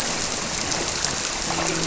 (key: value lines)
label: biophony, grouper
recorder: SoundTrap 300